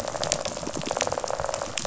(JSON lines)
{"label": "biophony, rattle", "recorder": "SoundTrap 500"}